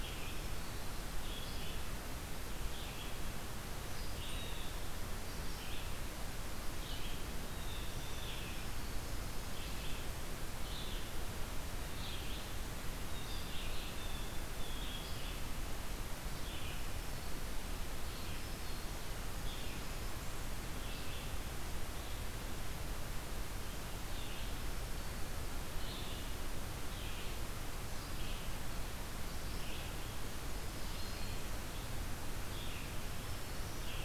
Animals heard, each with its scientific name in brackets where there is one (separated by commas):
Blue Jay (Cyanocitta cristata), Black-throated Green Warbler (Setophaga virens), Red-eyed Vireo (Vireo olivaceus)